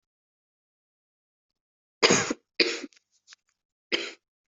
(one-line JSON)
{"expert_labels": [{"quality": "ok", "cough_type": "unknown", "dyspnea": false, "wheezing": false, "stridor": false, "choking": false, "congestion": false, "nothing": true, "diagnosis": "lower respiratory tract infection", "severity": "mild"}], "age": 18, "gender": "female", "respiratory_condition": false, "fever_muscle_pain": false, "status": "COVID-19"}